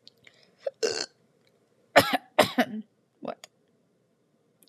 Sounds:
Throat clearing